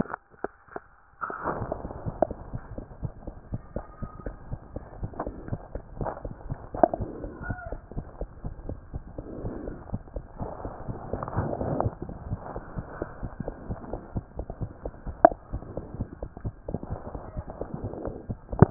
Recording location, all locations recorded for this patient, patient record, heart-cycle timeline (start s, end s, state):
aortic valve (AV)
aortic valve (AV)
#Age: Child
#Sex: Female
#Height: 85.0 cm
#Weight: 12.6 kg
#Pregnancy status: False
#Murmur: Absent
#Murmur locations: nan
#Most audible location: nan
#Systolic murmur timing: nan
#Systolic murmur shape: nan
#Systolic murmur grading: nan
#Systolic murmur pitch: nan
#Systolic murmur quality: nan
#Diastolic murmur timing: nan
#Diastolic murmur shape: nan
#Diastolic murmur grading: nan
#Diastolic murmur pitch: nan
#Diastolic murmur quality: nan
#Outcome: Normal
#Campaign: 2014 screening campaign
0.00	12.28	unannotated
12.28	12.40	S1
12.40	12.54	systole
12.54	12.62	S2
12.62	12.76	diastole
12.76	12.86	S1
12.86	13.00	systole
13.00	13.08	S2
13.08	13.22	diastole
13.22	13.32	S1
13.32	13.44	systole
13.44	13.54	S2
13.54	13.68	diastole
13.68	13.78	S1
13.78	13.90	systole
13.90	14.00	S2
14.00	14.14	diastole
14.14	14.24	S1
14.24	14.36	systole
14.36	14.46	S2
14.46	14.60	diastole
14.60	14.70	S1
14.70	14.84	systole
14.84	14.92	S2
14.92	15.06	diastole
15.06	15.16	S1
15.16	15.26	systole
15.26	15.36	S2
15.36	15.52	diastole
15.52	15.64	S1
15.64	15.74	systole
15.74	15.84	S2
15.84	15.98	diastole
15.98	16.08	S1
16.08	16.20	systole
16.20	16.30	S2
16.30	16.44	diastole
16.44	16.54	S1
16.54	16.68	systole
16.68	16.80	S2
16.80	16.92	diastole
16.92	17.00	S1
17.00	17.12	systole
17.12	17.22	S2
17.22	17.36	diastole
17.36	18.70	unannotated